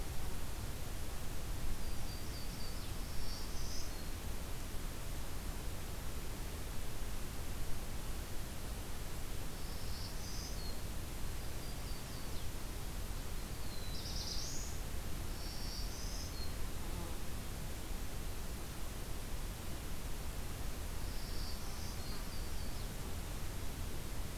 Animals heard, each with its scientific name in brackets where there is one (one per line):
Black-throated Blue Warbler (Setophaga caerulescens)
Black-throated Green Warbler (Setophaga virens)
Yellow-rumped Warbler (Setophaga coronata)